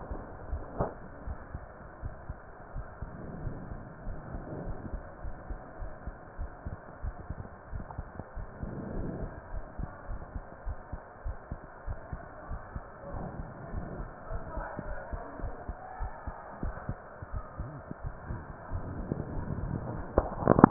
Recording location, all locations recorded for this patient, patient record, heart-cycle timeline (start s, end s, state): aortic valve (AV)
aortic valve (AV)+pulmonary valve (PV)+tricuspid valve (TV)+mitral valve (MV)
#Age: nan
#Sex: Female
#Height: nan
#Weight: nan
#Pregnancy status: True
#Murmur: Absent
#Murmur locations: nan
#Most audible location: nan
#Systolic murmur timing: nan
#Systolic murmur shape: nan
#Systolic murmur grading: nan
#Systolic murmur pitch: nan
#Systolic murmur quality: nan
#Diastolic murmur timing: nan
#Diastolic murmur shape: nan
#Diastolic murmur grading: nan
#Diastolic murmur pitch: nan
#Diastolic murmur quality: nan
#Outcome: Abnormal
#Campaign: 2015 screening campaign
0.00	0.48	unannotated
0.48	0.64	S1
0.64	0.76	systole
0.76	0.92	S2
0.92	1.22	diastole
1.22	1.38	S1
1.38	1.54	systole
1.54	1.68	S2
1.68	1.98	diastole
1.98	2.12	S1
2.12	2.26	systole
2.26	2.40	S2
2.40	2.70	diastole
2.70	2.86	S1
2.86	2.98	systole
2.98	3.10	S2
3.10	3.38	diastole
3.38	3.54	S1
3.54	3.68	systole
3.68	3.78	S2
3.78	4.04	diastole
4.04	4.20	S1
4.20	4.32	systole
4.32	4.42	S2
4.42	4.60	diastole
4.60	4.78	S1
4.78	4.90	systole
4.90	5.02	S2
5.02	5.24	diastole
5.24	5.34	S1
5.34	5.48	systole
5.48	5.58	S2
5.58	5.80	diastole
5.80	5.92	S1
5.92	6.06	systole
6.06	6.16	S2
6.16	6.40	diastole
6.40	6.52	S1
6.52	6.66	systole
6.66	6.78	S2
6.78	7.02	diastole
7.02	7.16	S1
7.16	7.28	systole
7.28	7.44	S2
7.44	7.70	diastole
7.70	7.84	S1
7.84	7.96	systole
7.96	8.06	S2
8.06	8.36	diastole
8.36	8.48	S1
8.48	8.64	systole
8.64	8.76	S2
8.76	8.94	diastole
8.94	9.10	S1
9.10	9.20	systole
9.20	9.30	S2
9.30	9.52	diastole
9.52	9.64	S1
9.64	9.78	systole
9.78	9.90	S2
9.90	10.08	diastole
10.08	10.22	S1
10.22	10.34	systole
10.34	10.44	S2
10.44	10.66	diastole
10.66	10.78	S1
10.78	10.92	systole
10.92	11.00	S2
11.00	11.22	diastole
11.22	11.38	S1
11.38	11.50	systole
11.50	11.60	S2
11.60	11.86	diastole
11.86	12.00	S1
12.00	12.12	systole
12.12	12.22	S2
12.22	12.48	diastole
12.48	12.60	S1
12.60	12.74	systole
12.74	12.84	S2
12.84	13.12	diastole
13.12	13.30	S1
13.30	13.38	systole
13.38	13.48	S2
13.48	13.72	diastole
13.72	13.86	S1
13.86	13.98	systole
13.98	14.08	S2
14.08	14.30	diastole
14.30	14.44	S1
14.44	14.56	systole
14.56	14.68	S2
14.68	14.88	diastole
14.88	14.98	S1
14.98	15.08	systole
15.08	15.20	S2
15.20	15.42	diastole
15.42	15.54	S1
15.54	15.66	systole
15.66	15.78	S2
15.78	16.00	diastole
16.00	16.14	S1
16.14	16.26	systole
16.26	16.34	S2
16.34	16.64	diastole
16.64	16.78	S1
16.78	16.90	systole
16.90	17.02	S2
17.02	17.32	diastole
17.32	17.44	S1
17.44	17.60	systole
17.60	17.76	S2
17.76	18.04	diastole
18.04	18.16	S1
18.16	18.30	systole
18.30	18.44	S2
18.44	18.70	diastole
18.70	18.84	S1
18.84	18.94	systole
18.94	19.08	S2
19.08	19.28	diastole
19.28	19.46	S1
19.46	20.70	unannotated